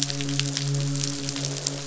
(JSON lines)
{"label": "biophony, croak", "recorder": "SoundTrap 500"}
{"label": "biophony, midshipman", "recorder": "SoundTrap 500"}